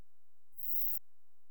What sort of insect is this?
orthopteran